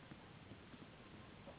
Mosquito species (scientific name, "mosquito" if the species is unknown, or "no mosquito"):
Anopheles gambiae s.s.